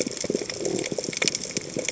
{"label": "biophony", "recorder": "HydroMoth"}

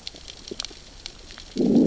{"label": "biophony, growl", "recorder": "SoundTrap 600 or HydroMoth"}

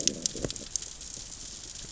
{"label": "biophony, growl", "recorder": "SoundTrap 600 or HydroMoth"}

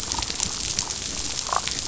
{"label": "biophony, damselfish", "recorder": "SoundTrap 500"}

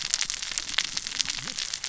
{"label": "biophony, cascading saw", "recorder": "SoundTrap 600 or HydroMoth"}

